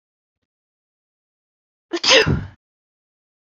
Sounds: Sneeze